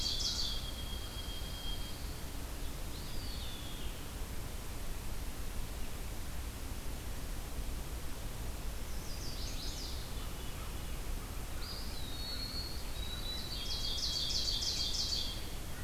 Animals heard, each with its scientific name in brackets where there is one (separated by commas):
Veery (Catharus fuscescens), Chestnut-sided Warbler (Setophaga pensylvanica), Eastern Wood-Pewee (Contopus virens), Ovenbird (Seiurus aurocapilla), Pine Warbler (Setophaga pinus), White-throated Sparrow (Zonotrichia albicollis)